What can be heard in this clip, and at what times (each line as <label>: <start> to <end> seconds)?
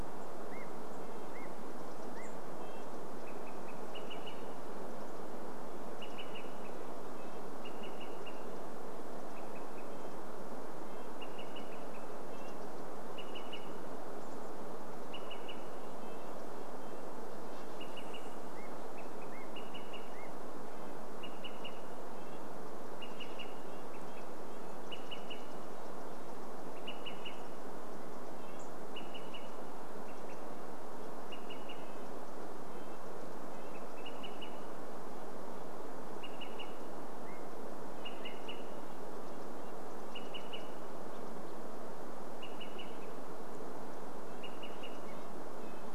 unidentified sound: 0 to 4 seconds
Red-breasted Nuthatch song: 0 to 18 seconds
Olive-sided Flycatcher call: 2 to 46 seconds
Chestnut-backed Chickadee call: 12 to 16 seconds
unidentified sound: 18 to 22 seconds
Red-breasted Nuthatch song: 20 to 36 seconds
Chestnut-backed Chickadee call: 22 to 26 seconds
Chestnut-backed Chickadee call: 28 to 30 seconds
unidentified sound: 36 to 42 seconds
Red-breasted Nuthatch song: 38 to 40 seconds
Red-breasted Nuthatch song: 42 to 46 seconds
unidentified sound: 44 to 46 seconds